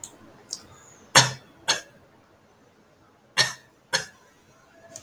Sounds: Cough